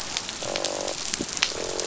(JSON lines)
{"label": "biophony, croak", "recorder": "SoundTrap 500"}